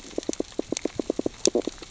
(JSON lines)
{"label": "biophony, stridulation", "recorder": "SoundTrap 600 or HydroMoth"}